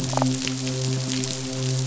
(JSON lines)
{"label": "biophony, midshipman", "recorder": "SoundTrap 500"}
{"label": "biophony", "recorder": "SoundTrap 500"}